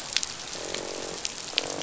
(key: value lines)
label: biophony, croak
recorder: SoundTrap 500